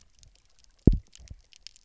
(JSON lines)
{"label": "biophony, double pulse", "recorder": "SoundTrap 300"}